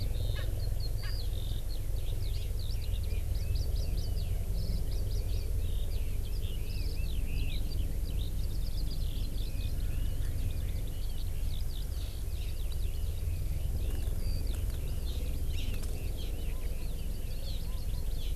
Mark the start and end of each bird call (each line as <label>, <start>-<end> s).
Eurasian Skylark (Alauda arvensis), 0.0-18.3 s
Erckel's Francolin (Pternistis erckelii), 0.3-0.4 s
Erckel's Francolin (Pternistis erckelii), 1.0-1.1 s
Red-billed Leiothrix (Leiothrix lutea), 2.7-7.6 s
Hawaii Amakihi (Chlorodrepanis virens), 3.3-4.1 s
Hawaii Amakihi (Chlorodrepanis virens), 4.8-5.4 s
Red-billed Leiothrix (Leiothrix lutea), 12.3-16.9 s
Hawaii Amakihi (Chlorodrepanis virens), 15.5-15.7 s
Hawaii Amakihi (Chlorodrepanis virens), 16.9-18.2 s